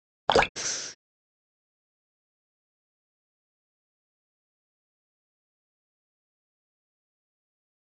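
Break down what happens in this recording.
- 0.3 s: the sound of dripping
- 0.6 s: someone breathes

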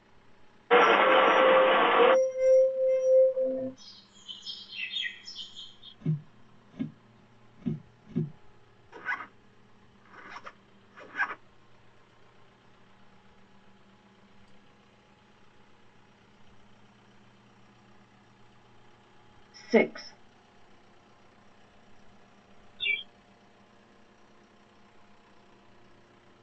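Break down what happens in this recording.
- 0.7 s: an engine is heard
- 0.8 s: the sound of glass
- 3.8 s: there is chirping
- 6.0 s: someone walks
- 8.9 s: you can hear a zipper
- 19.7 s: a voice says "six"
- 22.8 s: a bird can be heard
- a soft, steady noise sits in the background

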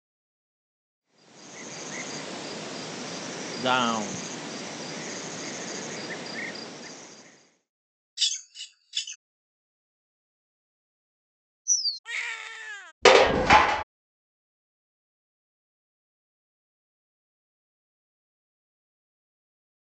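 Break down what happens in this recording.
- 1.0 s: an insect is heard, fading in and fading out
- 3.6 s: someone says "down"
- 8.2 s: the sound of bird vocalization
- 11.7 s: there is bird vocalization
- 12.0 s: crying can be heard
- 13.0 s: the sound of dishes

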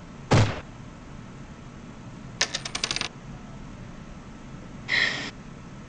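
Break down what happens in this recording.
- 0.3 s: there is gunfire
- 2.4 s: a coin drops
- 4.9 s: you can hear breathing
- a constant background noise persists about 20 decibels below the sounds

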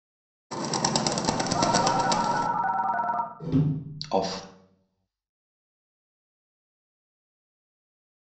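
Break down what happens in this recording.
- 0.5 s: a bird can be heard
- 1.5 s: you can hear a telephone
- 3.4 s: a wooden cupboard closes
- 4.0 s: someone says "off"

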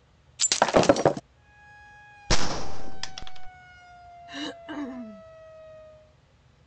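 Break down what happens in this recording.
- 0.4 s: glass shatters
- 1.3 s: a quiet siren can be heard, fading in and later fading out
- 2.3 s: you can hear gunfire
- 4.3 s: someone coughs

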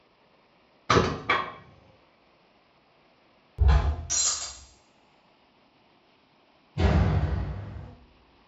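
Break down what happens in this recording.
- 0.9 s: the sound of wood
- 3.6 s: a whip is audible
- 4.1 s: glass shatters
- 6.8 s: a door slams
- a faint continuous noise lies about 35 decibels below the sounds

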